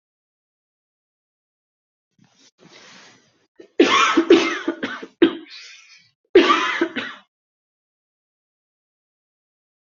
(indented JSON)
{
  "expert_labels": [
    {
      "quality": "good",
      "cough_type": "dry",
      "dyspnea": false,
      "wheezing": false,
      "stridor": false,
      "choking": false,
      "congestion": false,
      "nothing": true,
      "diagnosis": "upper respiratory tract infection",
      "severity": "mild"
    }
  ],
  "age": 32,
  "gender": "female",
  "respiratory_condition": false,
  "fever_muscle_pain": true,
  "status": "symptomatic"
}